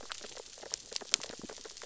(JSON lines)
{"label": "biophony, sea urchins (Echinidae)", "recorder": "SoundTrap 600 or HydroMoth"}